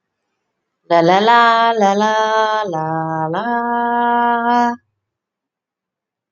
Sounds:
Sigh